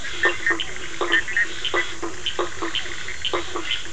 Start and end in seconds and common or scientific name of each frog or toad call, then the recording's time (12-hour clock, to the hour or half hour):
0.0	3.9	blacksmith tree frog
0.1	1.9	Bischoff's tree frog
9pm